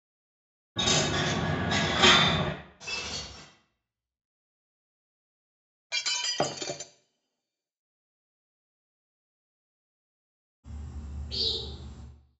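At 0.76 seconds, a coin drops. Then, at 2.8 seconds, glass shatters. After that, at 5.9 seconds, glass shatters. Finally, at 10.63 seconds, a bird can be heard.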